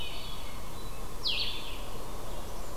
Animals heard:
Blackburnian Warbler (Setophaga fusca)
Hermit Thrush (Catharus guttatus)
Blue-headed Vireo (Vireo solitarius)

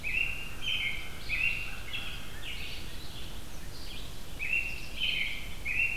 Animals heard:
Eastern Kingbird (Tyrannus tyrannus)
Red-eyed Vireo (Vireo olivaceus)
American Crow (Corvus brachyrhynchos)
American Robin (Turdus migratorius)

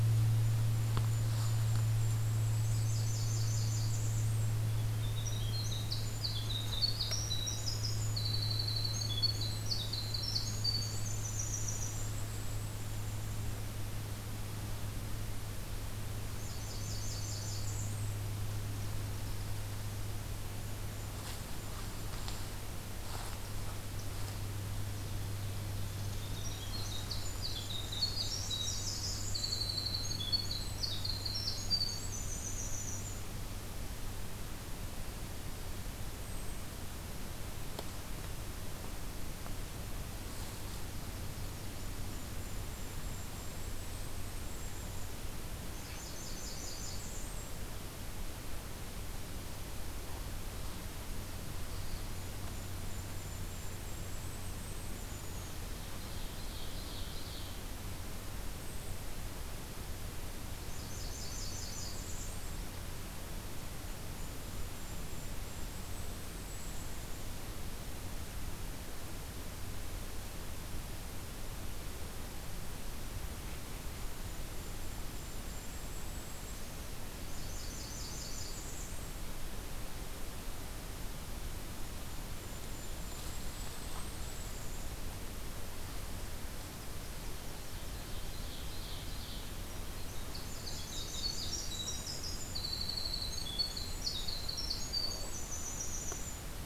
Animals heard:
Ovenbird (Seiurus aurocapilla)
Golden-crowned Kinglet (Regulus satrapa)
Northern Parula (Setophaga americana)
Winter Wren (Troglodytes hiemalis)
Blackburnian Warbler (Setophaga fusca)

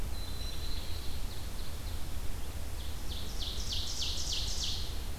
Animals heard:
Black-throated Blue Warbler (Setophaga caerulescens)
Ovenbird (Seiurus aurocapilla)

